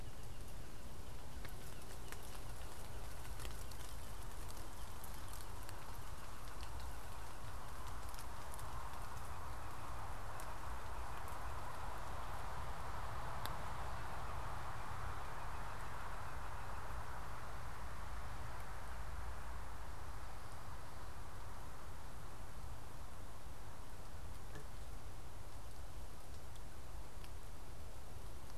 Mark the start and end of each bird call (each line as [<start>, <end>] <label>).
[0.00, 17.30] Blue Jay (Cyanocitta cristata)